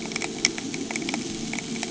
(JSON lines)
{"label": "anthrophony, boat engine", "recorder": "HydroMoth"}